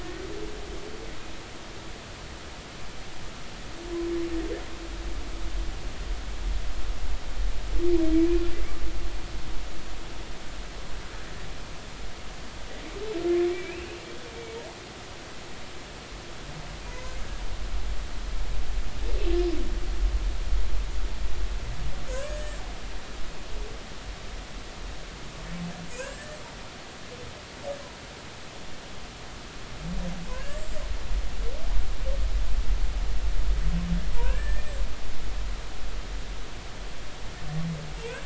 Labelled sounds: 8.1	8.4	humpback whale, 2.2 to 2.5 kHz
13.5	14.0	humpback whale, 2.2 to 2.8 kHz
16.9	17.2	humpback whale, 6.4 to 6.8 kHz
22.1	22.6	humpback whale, 1.7 to 7.9 kHz
25.9	26.4	humpback whale, 1.4 to 7.9 kHz
30.3	30.6	humpback whale, 1.5 to 1.9 kHz
34.1	34.8	humpback whale, 0.90 to 7.9 kHz

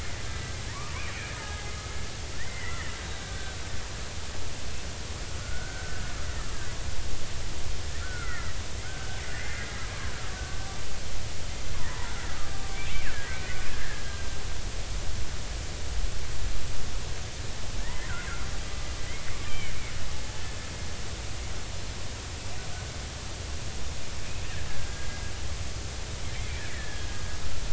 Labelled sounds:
0.3	1.0	killer whale, Bigg's (transient), 0.90 to 2.0 kHz
1.4	1.6	killer whale, Bigg's (transient), 1.6 to 1.9 kHz
2.4	3.6	killer whale, Bigg's (transient), 1.5 to 2.1 kHz
5.4	6.0	killer whale, Bigg's (transient), 1.2 to 1.6 kHz
8.0	8.5	killer whale, Bigg's (transient), 1.2 to 2.2 kHz
8.8	10.1	killer whale, Bigg's (transient), 0.96 to 2.1 kHz
11.8	12.1	killer whale, Bigg's (transient), 1.7 to 2.0 kHz
13.1	14.0	killer whale, Bigg's (transient), 1.5 to 1.9 kHz
17.8	18.5	killer whale, Bigg's (transient), 1.7 to 2.2 kHz
19.5	19.7	killer whale, Bigg's (transient), 2.0 to 3.2 kHz
24.7	25.2	killer whale, Bigg's (transient), 1.5 to 1.7 kHz
26.7	27.1	killer whale, Bigg's (transient), 1.6 to 3.3 kHz

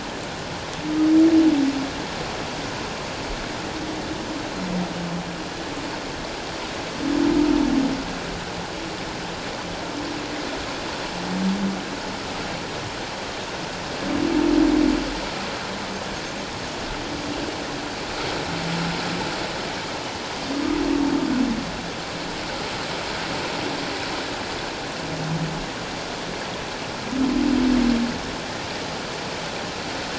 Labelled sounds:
4.5	4.7	humpback whale, 4.1 to 4.2 kHz

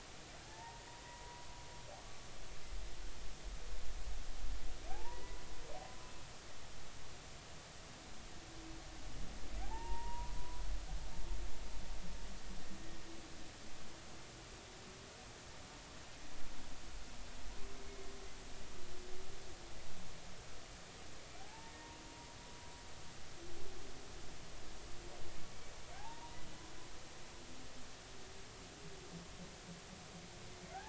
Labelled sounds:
0.4	1.5	humpback whale, 0.80 to 1.9 kHz
4.9	5.4	humpback whale, 0.80 to 2.1 kHz
9.6	10.6	humpback whale, 0.80 to 2.8 kHz
21.4	21.8	humpback whale, 0.80 to 0.96 kHz
25.9	26.4	humpback whale, 0.80 to 0.99 kHz

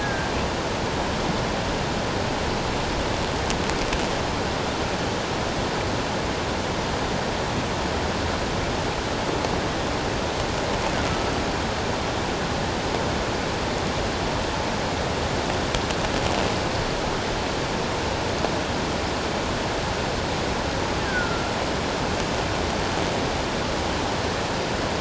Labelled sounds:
0.0	0.3	killer whale, offshore, call OFF17, 1.5 to 1.7 kHz
11.1	11.3	killer whale, offshore, call OFF17, 1.2 to 1.3 kHz
21.0	21.5	killer whale, offshore, call OFF17, 1.3 to 1.8 kHz

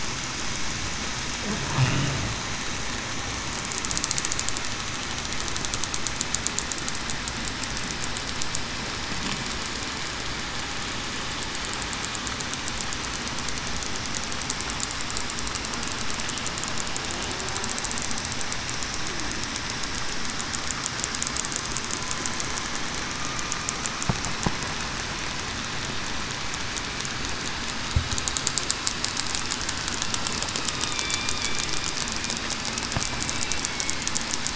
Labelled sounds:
30.9	31.3	killer whale, southern resident, 2.3 to 2.4 kHz
33.7	34.1	killer whale, southern resident, 2.1 to 2.2 kHz

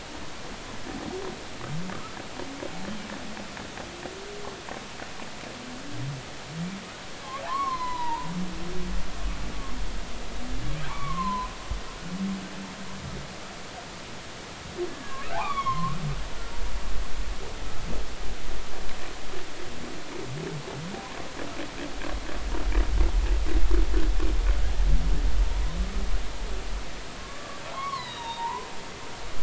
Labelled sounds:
1.9	2.2	humpback whale, 1.1 to 1.4 kHz
7.4	8.3	humpback whale, 0.80 to 4.3 kHz
10.9	11.5	humpback whale, 0.83 to 2.3 kHz
14.9	16.0	humpback whale, 0.80 to 3.5 kHz
27.2	28.7	humpback whale, 0.83 to 5.7 kHz

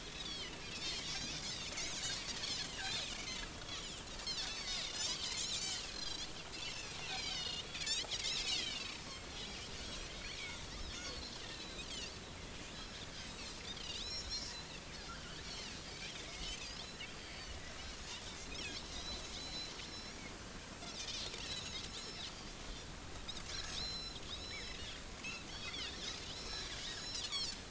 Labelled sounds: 0.1	1.7	Pacific white-sided dolphin, 2.6 to 7.5 kHz
2.6	8.9	Pacific white-sided dolphin, 1.6 to 7.2 kHz
9.3	9.6	Pacific white-sided dolphin, 3.2 to 3.6 kHz
10.4	11.0	Pacific white-sided dolphin, 1.9 to 5.6 kHz
11.5	11.9	Pacific white-sided dolphin, 3.6 to 4.2 kHz
13.8	14.6	Pacific white-sided dolphin, 2.7 to 6.9 kHz
15.4	16.9	Pacific white-sided dolphin, 1.9 to 5.4 kHz
18.5	20.2	Pacific white-sided dolphin, 2.4 to 5.8 kHz
20.7	22.6	Pacific white-sided dolphin, 3.3 to 6.8 kHz
23.7	24.8	Pacific white-sided dolphin, 3.4 to 6.9 kHz
25.5	27.6	Pacific white-sided dolphin, 1.8 to 7.1 kHz

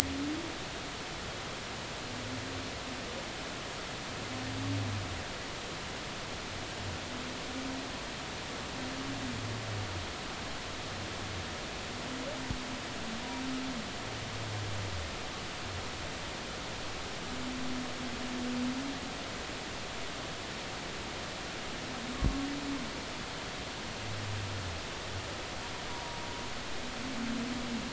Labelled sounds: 22.1	22.4	humpback whale, 1.0 to 1.2 kHz
25.9	26.2	humpback whale, 0.93 to 0.99 kHz

